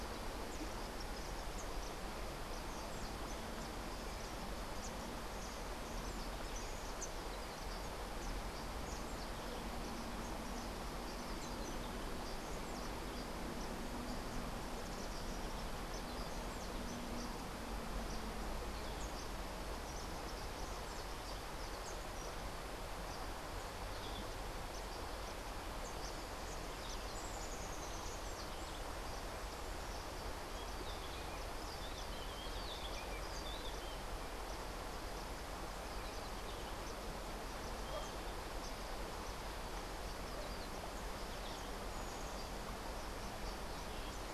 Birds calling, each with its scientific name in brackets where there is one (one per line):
Rufous-tailed Hummingbird (Amazilia tzacatl)